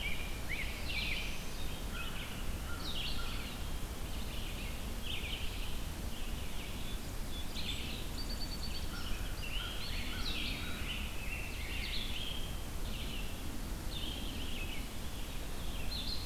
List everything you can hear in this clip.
Rose-breasted Grosbeak, Red-eyed Vireo, Black-throated Blue Warbler, American Crow, Eastern Wood-Pewee, Song Sparrow